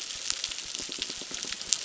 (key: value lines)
label: biophony, crackle
recorder: SoundTrap 600